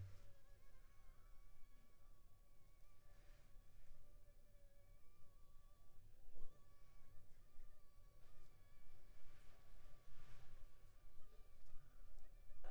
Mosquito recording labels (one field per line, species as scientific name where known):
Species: Anopheles funestus s.s.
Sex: female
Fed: unfed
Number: one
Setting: cup